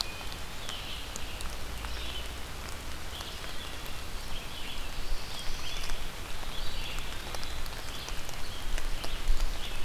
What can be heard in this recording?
Red-eyed Vireo, Black-throated Blue Warbler, Eastern Wood-Pewee